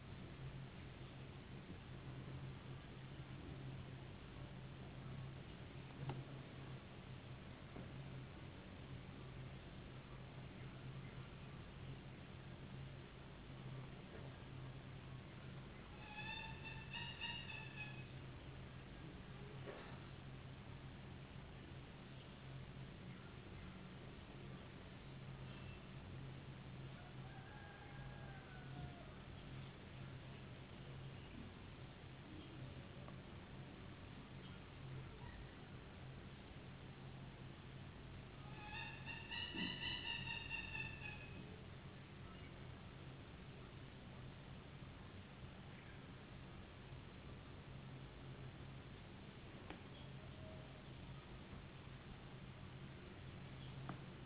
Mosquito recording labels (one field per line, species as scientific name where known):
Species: no mosquito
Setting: insect culture